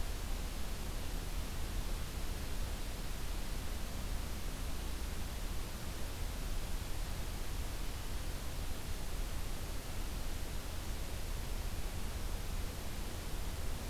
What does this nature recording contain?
forest ambience